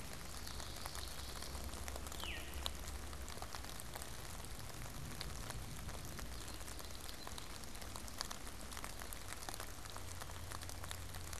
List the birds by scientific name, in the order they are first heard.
Geothlypis trichas, Catharus fuscescens